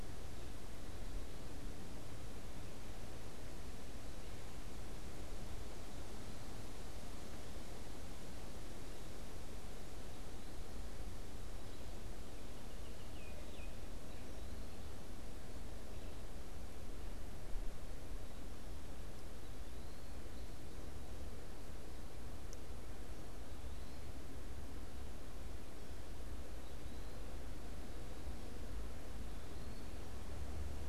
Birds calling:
Baltimore Oriole (Icterus galbula), Eastern Wood-Pewee (Contopus virens)

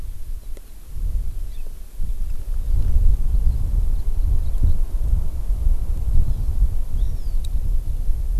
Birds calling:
Hawaii Amakihi (Chlorodrepanis virens)

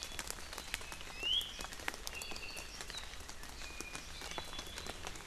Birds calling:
Iiwi (Drepanis coccinea), Apapane (Himatione sanguinea)

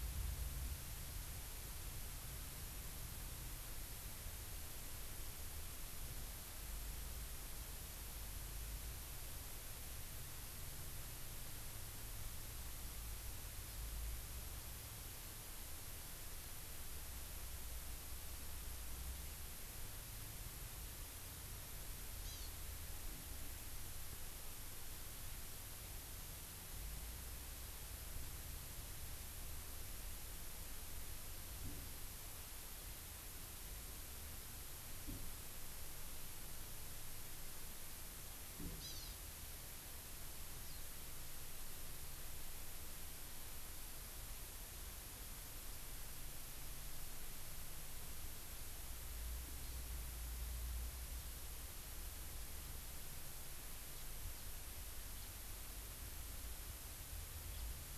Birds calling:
House Finch (Haemorhous mexicanus), Hawaii Amakihi (Chlorodrepanis virens)

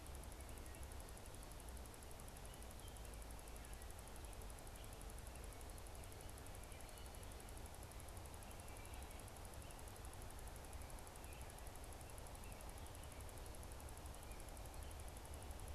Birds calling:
American Robin (Turdus migratorius), Wood Thrush (Hylocichla mustelina)

